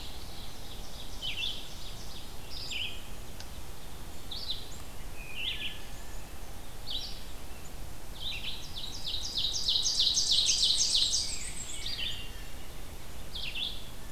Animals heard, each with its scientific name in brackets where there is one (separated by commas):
Wood Thrush (Hylocichla mustelina), Red-eyed Vireo (Vireo olivaceus), Black-and-white Warbler (Mniotilta varia), Ovenbird (Seiurus aurocapilla)